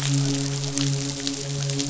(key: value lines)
label: biophony, midshipman
recorder: SoundTrap 500